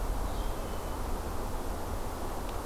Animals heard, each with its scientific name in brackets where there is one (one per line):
Red-eyed Vireo (Vireo olivaceus)